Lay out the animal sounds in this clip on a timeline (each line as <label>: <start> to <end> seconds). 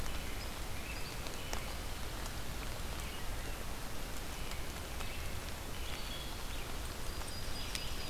American Robin (Turdus migratorius): 0.0 to 1.8 seconds
Red-eyed Vireo (Vireo olivaceus): 1.0 to 8.1 seconds
American Robin (Turdus migratorius): 4.0 to 6.1 seconds
Wood Thrush (Hylocichla mustelina): 5.5 to 6.7 seconds
Yellow-rumped Warbler (Setophaga coronata): 6.9 to 8.1 seconds
American Robin (Turdus migratorius): 7.5 to 8.1 seconds